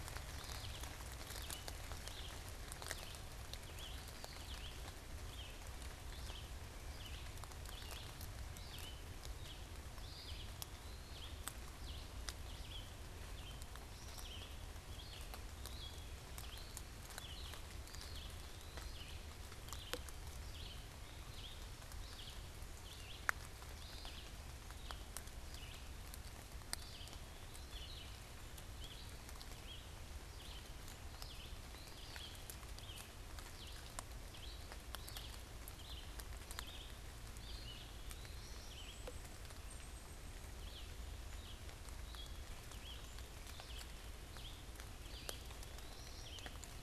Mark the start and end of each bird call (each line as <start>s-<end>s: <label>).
0.0s-46.8s: Red-eyed Vireo (Vireo olivaceus)
3.9s-4.7s: Eastern Wood-Pewee (Contopus virens)
10.0s-11.3s: Eastern Wood-Pewee (Contopus virens)
17.8s-19.1s: Eastern Wood-Pewee (Contopus virens)
26.6s-28.0s: Eastern Wood-Pewee (Contopus virens)
37.4s-38.8s: Eastern Wood-Pewee (Contopus virens)
38.6s-40.5s: Black-capped Chickadee (Poecile atricapillus)
45.0s-46.3s: Eastern Wood-Pewee (Contopus virens)